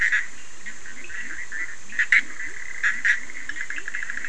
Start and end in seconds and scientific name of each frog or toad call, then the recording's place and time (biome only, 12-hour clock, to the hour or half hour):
0.0	4.2	Boana bischoffi
0.4	4.2	Leptodactylus latrans
Atlantic Forest, ~midnight